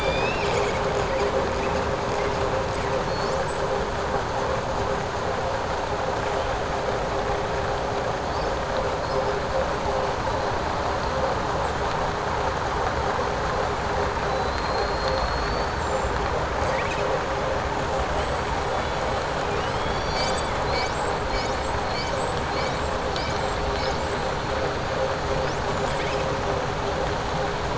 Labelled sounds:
14.3	15.7	killer whale, southern resident, 3.5 to 4.8 kHz

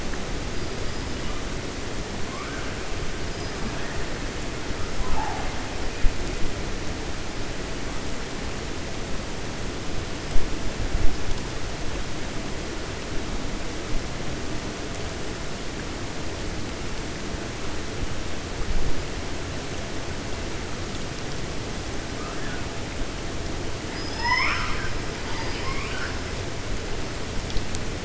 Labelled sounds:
23.8	26.2	killer whale, 0.87 to 6.1 kHz

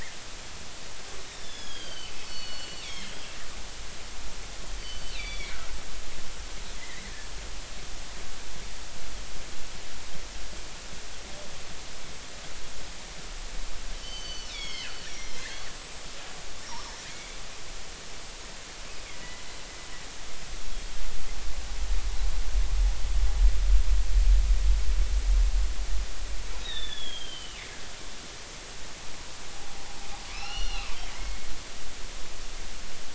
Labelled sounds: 1.3	3.1	killer whale, northern resident, G clan, GG subclan, 1.4 to 6.4 kHz
5.1	5.6	killer whale, northern resident, G clan, GG subclan, 2.1 to 4.4 kHz
6.8	7.1	killer whale, northern resident, G clan, GG subclan, 1.8 to 2.2 kHz
13.9	17.4	killer whale, northern resident, G clan, GG subclan, 2.0 to 8.0 kHz
26.6	27.6	killer whale, northern resident, G clan, GG subclan, 1.7 to 3.9 kHz
29.5	31.4	killer whale, northern resident, G clan, 0.80 to 5.9 kHz

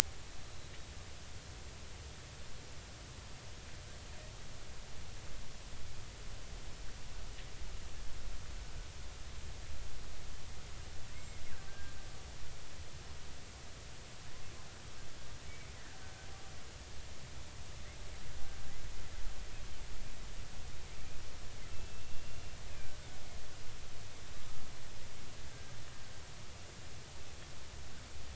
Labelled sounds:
11.1	11.4	killer whale, Bigg's (transient), 2.0 to 2.2 kHz
11.7	12.0	killer whale, Bigg's (transient), 1.5 to 1.7 kHz
21.7	22.9	killer whale, Bigg's (transient), 2.3 to 2.8 kHz

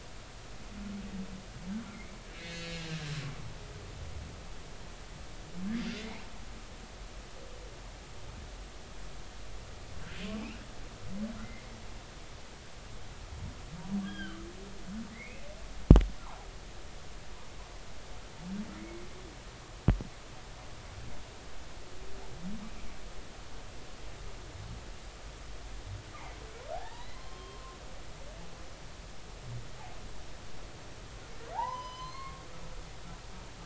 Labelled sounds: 1.9	3.0	humpback whale, 1.5 to 6.3 kHz
6.0	6.2	humpback whale, 2.0 to 2.6 kHz
11.4	11.7	humpback whale, 1.9 to 2.2 kHz
14.0	14.4	humpback whale, 1.1 to 3.4 kHz
15.1	15.5	humpback whale, 1.9 to 2.7 kHz
18.8	19.0	humpback whale, 2.0 to 2.3 kHz
26.7	27.6	humpback whale, 0.80 to 4.3 kHz
31.5	32.4	humpback whale, 0.80 to 6.3 kHz

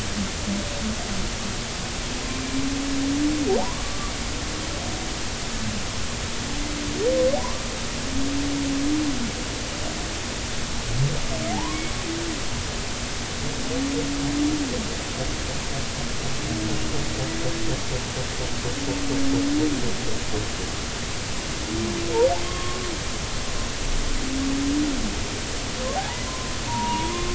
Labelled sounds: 3.6	4.1	humpback whale, 0.80 to 1.2 kHz
7.4	7.7	humpback whale, 0.93 to 1.2 kHz
11.5	11.8	humpback whale, 0.80 to 1.2 kHz
22.4	22.8	humpback whale, 1.0 to 1.2 kHz
25.9	27.3	humpback whale, 0.80 to 1.1 kHz

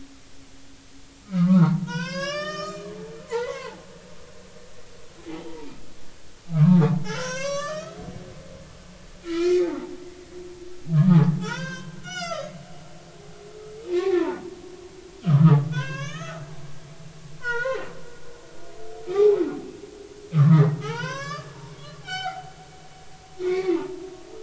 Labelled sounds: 1.5	3.7	humpback whale, 0.86 to 8.0 kHz
4.2	5.7	humpback whale, 0.80 to 1.2 kHz
6.5	8.0	humpback whale, 0.96 to 7.7 kHz
9.2	10.6	humpback whale, 1.2 to 3.2 kHz
10.9	12.5	humpback whale, 0.80 to 7.4 kHz
13.9	14.4	humpback whale, 0.83 to 2.5 kHz
15.2	16.4	humpback whale, 0.93 to 6.8 kHz
17.4	17.9	humpback whale, 0.86 to 3.2 kHz
19.1	19.4	humpback whale, 0.80 to 2.5 kHz
20.3	22.5	humpback whale, 0.80 to 8.0 kHz
23.4	23.8	humpback whale, 1.8 to 2.5 kHz

